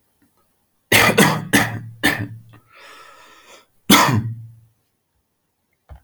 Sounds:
Cough